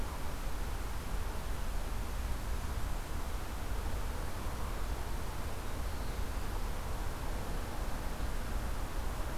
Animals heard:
forest ambience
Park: Marsh-Billings-Rockefeller National Historical Park